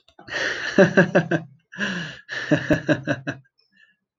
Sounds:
Laughter